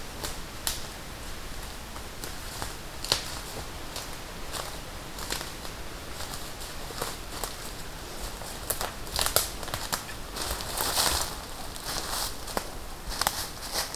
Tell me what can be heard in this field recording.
forest ambience